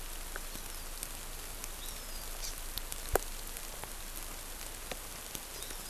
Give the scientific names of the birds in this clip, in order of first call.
Buteo solitarius, Chlorodrepanis virens